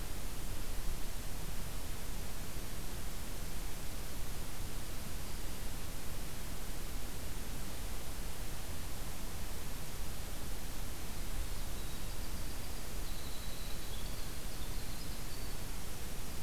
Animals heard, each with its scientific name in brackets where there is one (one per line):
Winter Wren (Troglodytes hiemalis)